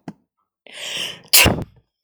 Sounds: Sneeze